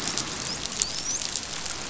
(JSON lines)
{"label": "biophony, dolphin", "recorder": "SoundTrap 500"}